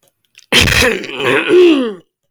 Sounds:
Throat clearing